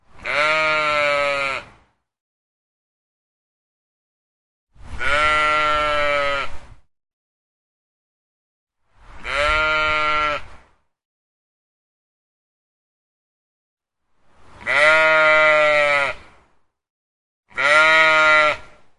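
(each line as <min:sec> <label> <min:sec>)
0:00.2 A sheep is bleating in the countryside. 0:01.7
0:04.8 A sheep is bleating in the countryside. 0:06.8
0:09.0 A sheep bleats loudly in the countryside. 0:10.6
0:14.5 A sheep bleats loudly in the countryside. 0:16.3
0:17.5 A sheep is bleating in the countryside. 0:18.7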